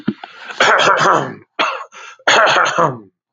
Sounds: Throat clearing